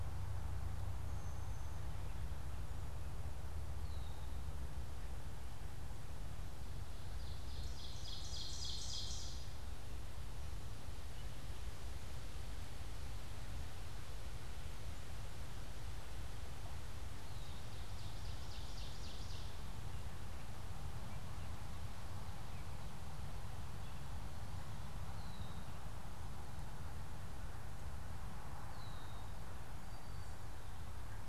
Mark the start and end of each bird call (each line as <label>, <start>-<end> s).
Brown-headed Cowbird (Molothrus ater), 1.0-2.0 s
Ovenbird (Seiurus aurocapilla), 3.7-4.4 s
Ovenbird (Seiurus aurocapilla), 6.9-9.8 s
Red-winged Blackbird (Agelaius phoeniceus), 17.1-17.7 s
Ovenbird (Seiurus aurocapilla), 17.2-19.9 s
Red-winged Blackbird (Agelaius phoeniceus), 24.8-29.5 s
unidentified bird, 29.7-30.5 s